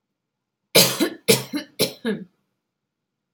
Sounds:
Cough